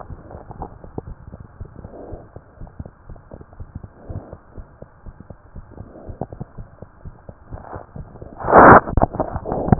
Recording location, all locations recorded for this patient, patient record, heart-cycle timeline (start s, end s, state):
mitral valve (MV)
aortic valve (AV)+pulmonary valve (PV)+tricuspid valve (TV)+mitral valve (MV)
#Age: Child
#Sex: Male
#Height: 75.0 cm
#Weight: 10.1 kg
#Pregnancy status: False
#Murmur: Absent
#Murmur locations: nan
#Most audible location: nan
#Systolic murmur timing: nan
#Systolic murmur shape: nan
#Systolic murmur grading: nan
#Systolic murmur pitch: nan
#Systolic murmur quality: nan
#Diastolic murmur timing: nan
#Diastolic murmur shape: nan
#Diastolic murmur grading: nan
#Diastolic murmur pitch: nan
#Diastolic murmur quality: nan
#Outcome: Abnormal
#Campaign: 2015 screening campaign
0.00	4.54	unannotated
4.54	4.66	S1
4.66	4.80	systole
4.80	4.86	S2
4.86	5.04	diastole
5.04	5.14	S1
5.14	5.27	systole
5.27	5.36	S2
5.36	5.53	diastole
5.53	5.64	S1
5.64	5.78	systole
5.78	5.84	S2
5.84	6.07	diastole
6.07	6.17	S1
6.17	6.38	systole
6.38	6.46	S2
6.46	6.57	diastole
6.57	6.64	S1
6.64	6.80	systole
6.80	6.87	S2
6.87	7.02	diastole
7.02	7.14	S1
7.14	7.26	systole
7.26	7.34	S2
7.34	7.50	diastole
7.50	7.62	S1
7.62	7.73	systole
7.73	7.82	S2
7.82	7.95	diastole
7.95	8.08	S1
8.08	9.79	unannotated